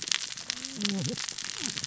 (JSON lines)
{"label": "biophony, cascading saw", "recorder": "SoundTrap 600 or HydroMoth"}